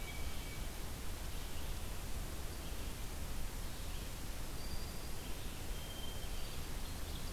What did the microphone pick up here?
Hermit Thrush, Red-eyed Vireo, Black-throated Green Warbler, Ovenbird